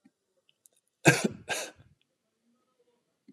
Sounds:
Cough